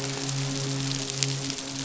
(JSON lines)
{"label": "biophony, midshipman", "recorder": "SoundTrap 500"}